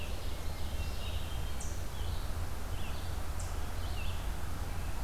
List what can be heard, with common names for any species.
Ovenbird, Eastern Chipmunk, Red-eyed Vireo, Hermit Thrush